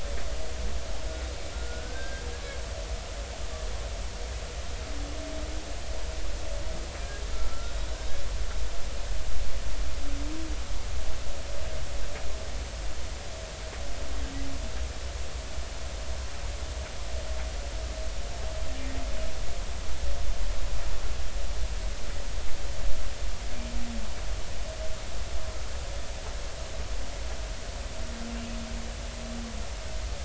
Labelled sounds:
1.5	2.2	humpback whale, 1.3 to 1.7 kHz
7.3	7.7	humpback whale, 1.3 to 1.5 kHz

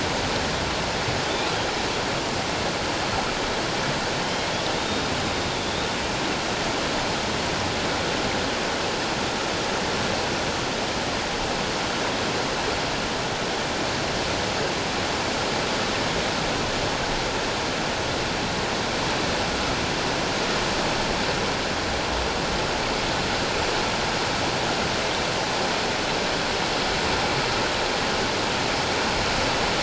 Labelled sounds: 4.9	5.9	humpback whale, 3.4 to 3.8 kHz

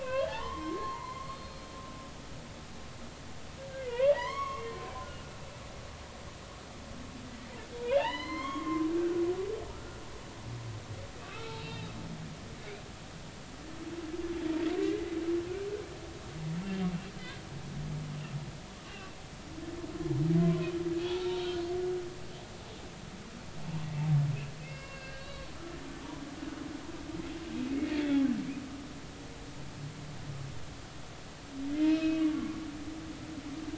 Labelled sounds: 0.0	1.7	humpback whale, 0.80 to 4.4 kHz
3.9	4.7	humpback whale, 0.83 to 6.7 kHz
7.9	9.2	humpback whale, 0.80 to 4.4 kHz
9.7	10.0	humpback whale, 1.2 to 1.5 kHz
11.2	11.9	humpback whale, 1.1 to 2.9 kHz
14.8	15.2	humpback whale, 1.9 to 2.1 kHz
16.6	16.9	humpback whale, 2.7 to 2.8 kHz
18.9	19.2	humpback whale, 2.6 to 2.9 kHz
20.4	21.5	humpback whale, 0.99 to 3.9 kHz
24.6	25.5	humpback whale, 1.0 to 5.0 kHz
27.9	28.2	humpback whale, 2.1 to 3.6 kHz
32.3	33.2	humpback whale, 0.99 to 2.6 kHz

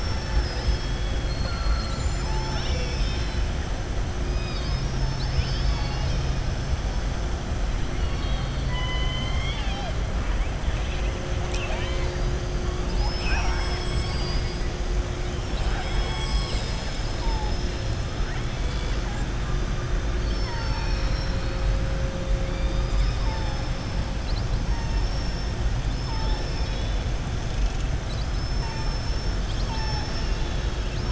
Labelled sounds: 7.9	9.9	killer whale, southern resident, 0.68 to 5.5 kHz
11.4	12.3	killer whale, southern resident, 0.70 to 7.8 kHz
12.8	14.6	killer whale, southern resident, 0.75 to 5.7 kHz
20.1	21.7	killer whale, southern resident, 0.90 to 6.2 kHz
24.6	25.5	killer whale, southern resident, 0.89 to 6.4 kHz
28.1	29.3	killer whale, southern resident, 3.9 to 6.3 kHz

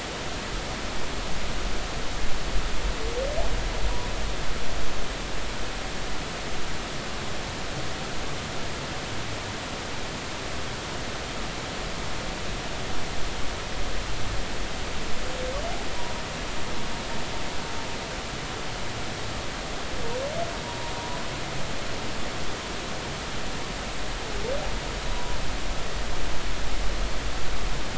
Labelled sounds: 20.6	20.9	humpback whale, 0.90 to 0.99 kHz
25.1	25.4	humpback whale, 0.93 to 1.0 kHz

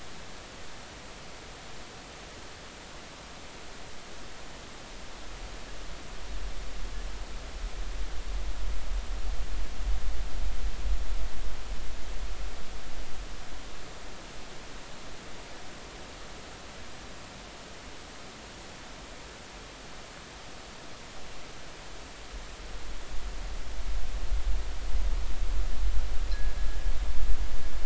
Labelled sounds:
26.3	26.6	fishing gear, 1.6 to 1.8 kHz

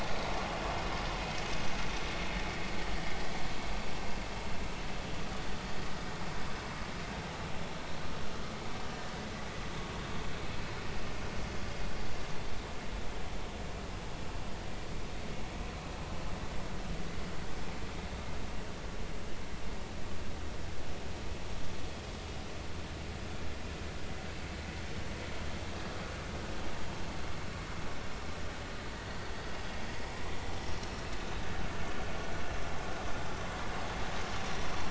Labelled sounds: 0.1	0.3	vessel noise, 3.8 to 4.0 kHz
9.9	10.2	vessel noise, 1.7 to 1.8 kHz
31.9	32.2	vessel noise, 5.3 to 5.5 kHz

